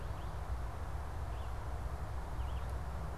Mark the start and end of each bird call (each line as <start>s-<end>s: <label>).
0.0s-3.2s: Red-eyed Vireo (Vireo olivaceus)